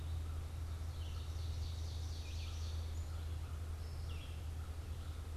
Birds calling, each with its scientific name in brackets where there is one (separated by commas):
Ovenbird (Seiurus aurocapilla), American Crow (Corvus brachyrhynchos), Red-eyed Vireo (Vireo olivaceus)